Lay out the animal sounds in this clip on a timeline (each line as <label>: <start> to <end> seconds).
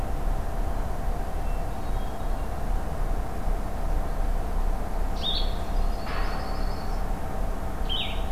Hermit Thrush (Catharus guttatus): 1.4 to 2.4 seconds
Blue-headed Vireo (Vireo solitarius): 5.1 to 8.3 seconds
Yellow-rumped Warbler (Setophaga coronata): 5.6 to 7.1 seconds